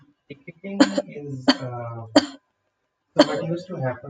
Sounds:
Cough